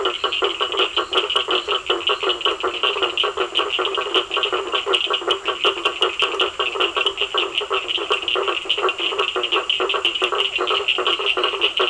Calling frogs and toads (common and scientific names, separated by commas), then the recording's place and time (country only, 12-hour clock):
blacksmith tree frog (Boana faber), Cochran's lime tree frog (Sphaenorhynchus surdus), Physalaemus cuvieri
Brazil, 7:30pm